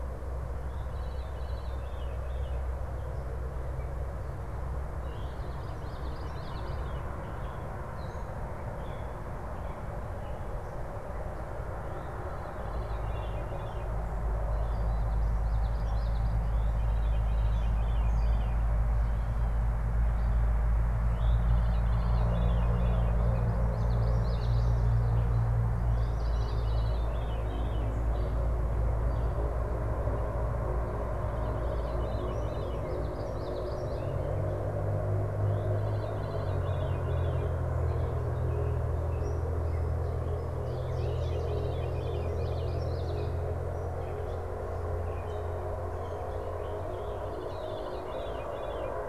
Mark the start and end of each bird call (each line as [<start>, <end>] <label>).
[0.00, 7.19] Veery (Catharus fuscescens)
[5.39, 7.09] Common Yellowthroat (Geothlypis trichas)
[11.99, 23.29] Veery (Catharus fuscescens)
[15.19, 16.59] Common Yellowthroat (Geothlypis trichas)
[23.29, 24.89] Common Yellowthroat (Geothlypis trichas)
[25.99, 48.99] Veery (Catharus fuscescens)
[32.89, 34.19] Common Yellowthroat (Geothlypis trichas)
[37.69, 40.09] Gray Catbird (Dumetella carolinensis)
[40.49, 41.89] Chestnut-sided Warbler (Setophaga pensylvanica)
[42.09, 43.59] Common Yellowthroat (Geothlypis trichas)